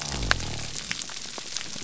{"label": "biophony", "recorder": "SoundTrap 300"}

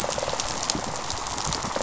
{"label": "biophony, rattle response", "recorder": "SoundTrap 500"}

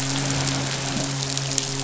{"label": "biophony, midshipman", "recorder": "SoundTrap 500"}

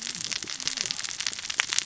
{"label": "biophony, cascading saw", "recorder": "SoundTrap 600 or HydroMoth"}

